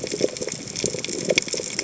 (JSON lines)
{"label": "biophony, chatter", "recorder": "HydroMoth"}